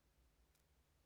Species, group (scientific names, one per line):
Decticus verrucivorus
Orthoptera